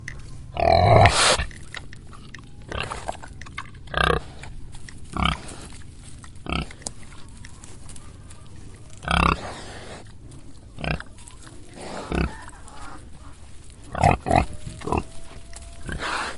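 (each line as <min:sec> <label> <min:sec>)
0:00.0 A pig sniffs and grunts repeatedly. 0:16.4
0:11.6 Chickens clucking in the distance outdoors. 0:16.4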